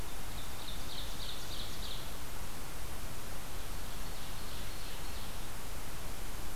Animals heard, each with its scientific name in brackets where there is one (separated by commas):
Ovenbird (Seiurus aurocapilla)